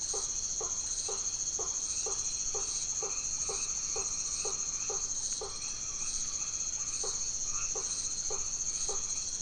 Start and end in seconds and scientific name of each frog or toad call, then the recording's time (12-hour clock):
0.0	9.4	Boana faber
1.7	9.4	Boana albomarginata
9:00pm